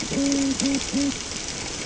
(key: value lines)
label: ambient
recorder: HydroMoth